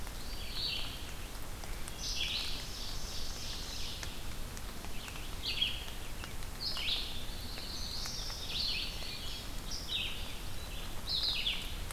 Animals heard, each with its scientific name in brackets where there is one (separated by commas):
Black-throated Blue Warbler (Setophaga caerulescens), Ovenbird (Seiurus aurocapilla), Indigo Bunting (Passerina cyanea), Eastern Wood-Pewee (Contopus virens), Wood Thrush (Hylocichla mustelina), Red-eyed Vireo (Vireo olivaceus)